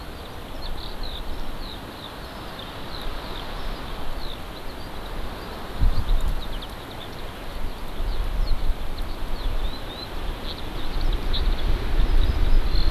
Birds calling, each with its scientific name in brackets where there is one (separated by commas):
Eurasian Skylark (Alauda arvensis)